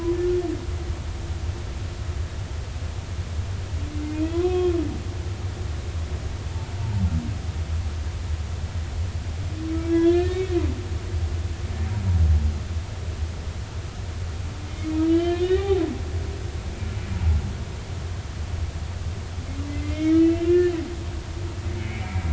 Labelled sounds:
4.3	4.7	humpback whale, 0.96 to 2.6 kHz
5.1	5.4	humpback whale, 2.3 to 2.7 kHz
6.8	7.0	humpback whale, 0.83 to 0.96 kHz
9.9	10.4	humpback whale, 1.6 to 1.9 kHz
15.1	15.8	humpback whale, 0.80 to 3.5 kHz
19.7	20.7	humpback whale, 1.3 to 5.8 kHz
21.8	22.2	humpback whale, 2.0 to 2.4 kHz

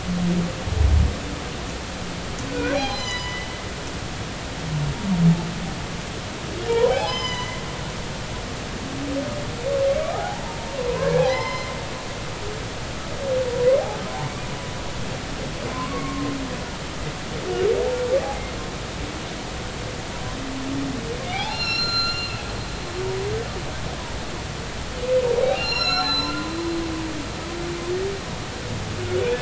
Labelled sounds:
2.7	3.5	humpback whale, 0.80 to 5.1 kHz
6.7	7.6	humpback whale, 0.80 to 7.2 kHz
10.1	10.4	humpback whale, 0.80 to 0.99 kHz
10.7	11.7	humpback whale, 0.83 to 5.2 kHz
15.7	16.3	humpback whale, 0.96 to 2.3 kHz
21.2	22.5	humpback whale, 0.80 to 7.0 kHz
25.4	26.3	humpback whale, 0.80 to 5.6 kHz

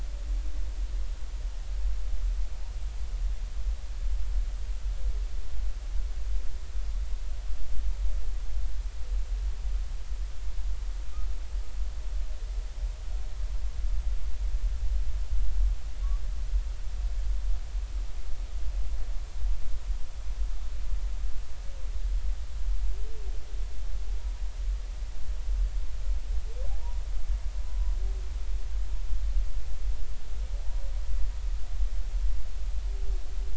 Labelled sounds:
30.6	30.8	humpback whale, 0.80 to 0.99 kHz

